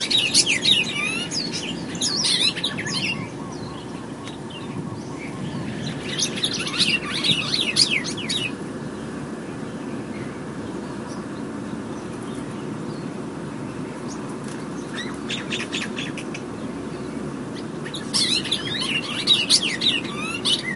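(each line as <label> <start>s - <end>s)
Birds chirping outdoors in nature. 0.0s - 3.5s
Birds chirp quietly in the distance. 0.0s - 20.8s
Birds chirping outdoors in nature. 6.0s - 9.0s
Birds chirping outdoors in nature. 17.7s - 20.8s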